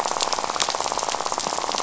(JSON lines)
{"label": "biophony, rattle", "recorder": "SoundTrap 500"}